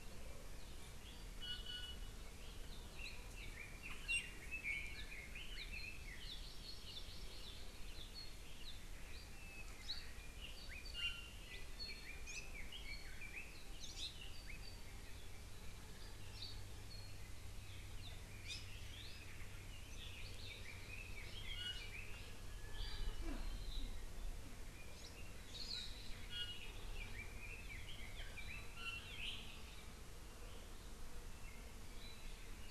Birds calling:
Iiwi (Drepanis coccinea), Red-billed Leiothrix (Leiothrix lutea), Hawaii Amakihi (Chlorodrepanis virens), Hawaii Creeper (Loxops mana)

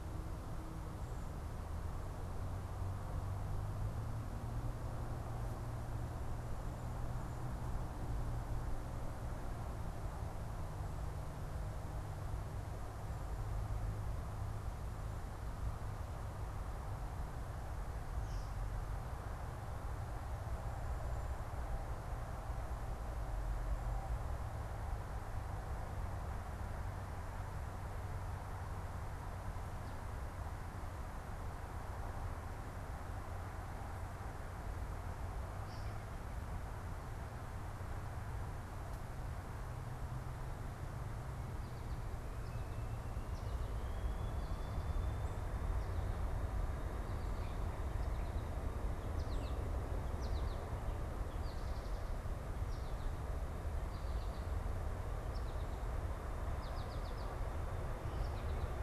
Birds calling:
American Robin (Turdus migratorius), American Goldfinch (Spinus tristis)

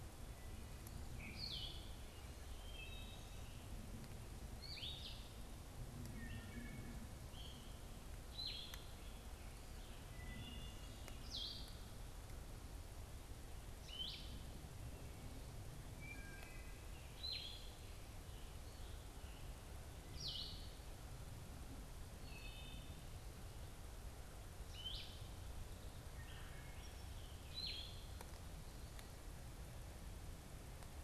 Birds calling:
Blue-headed Vireo (Vireo solitarius), Wood Thrush (Hylocichla mustelina)

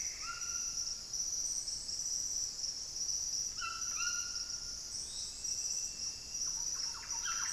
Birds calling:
Thrush-like Wren (Campylorhynchus turdinus), Plumbeous Antbird (Myrmelastes hyperythrus), White-throated Toucan (Ramphastos tucanus)

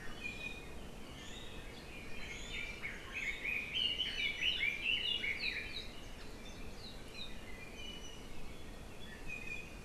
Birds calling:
Iiwi (Drepanis coccinea), Red-billed Leiothrix (Leiothrix lutea)

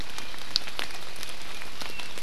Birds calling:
Apapane (Himatione sanguinea)

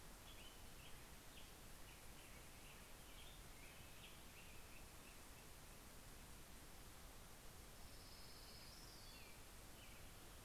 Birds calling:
Orange-crowned Warbler (Leiothlypis celata), Black-headed Grosbeak (Pheucticus melanocephalus), American Robin (Turdus migratorius)

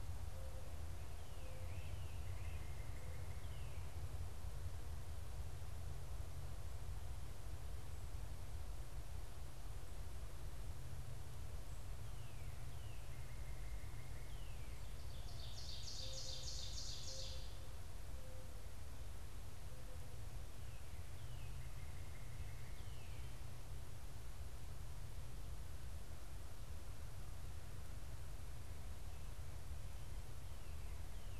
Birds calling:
Ovenbird (Seiurus aurocapilla), Great Crested Flycatcher (Myiarchus crinitus), Mourning Dove (Zenaida macroura), Northern Cardinal (Cardinalis cardinalis)

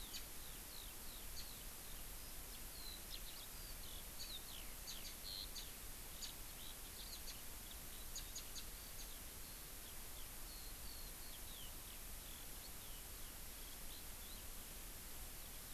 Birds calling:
House Finch (Haemorhous mexicanus), Eurasian Skylark (Alauda arvensis)

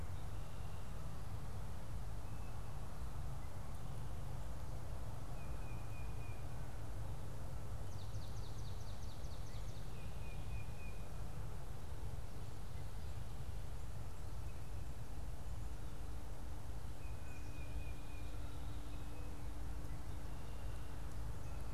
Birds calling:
Swamp Sparrow (Melospiza georgiana), Tufted Titmouse (Baeolophus bicolor)

